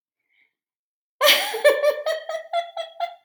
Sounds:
Laughter